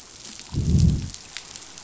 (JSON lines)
{"label": "biophony, growl", "recorder": "SoundTrap 500"}